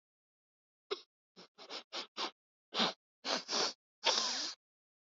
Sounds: Sniff